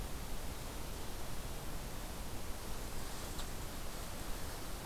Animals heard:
forest ambience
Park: Katahdin Woods and Waters National Monument